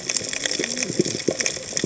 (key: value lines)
label: biophony, cascading saw
recorder: HydroMoth